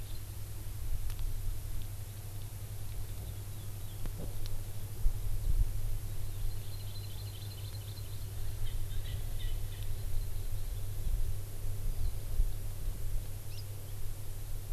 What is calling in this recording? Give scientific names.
Chlorodrepanis virens, Pternistis erckelii